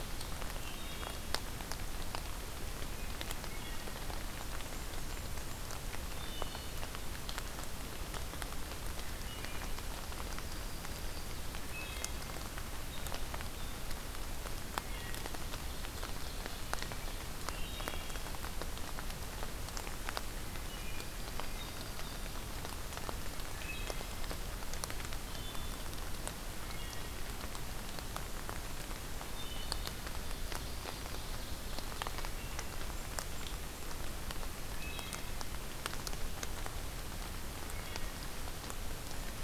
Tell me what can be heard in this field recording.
Wood Thrush, Yellow-rumped Warbler, Ovenbird